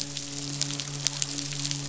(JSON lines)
{"label": "biophony, midshipman", "recorder": "SoundTrap 500"}